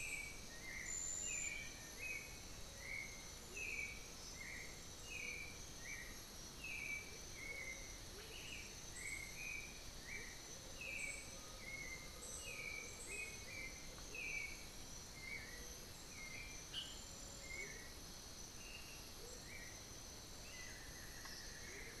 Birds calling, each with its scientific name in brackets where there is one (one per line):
Black-faced Antthrush (Formicarius analis)
Undulated Tinamou (Crypturellus undulatus)
Buff-throated Woodcreeper (Xiphorhynchus guttatus)
Black-billed Thrush (Turdus ignobilis)
Amazonian Motmot (Momotus momota)